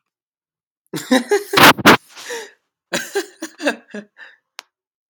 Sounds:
Laughter